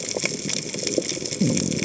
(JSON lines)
{"label": "biophony", "recorder": "HydroMoth"}